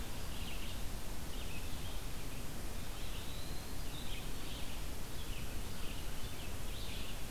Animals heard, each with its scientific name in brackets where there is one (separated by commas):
Eastern Wood-Pewee (Contopus virens), Red-eyed Vireo (Vireo olivaceus)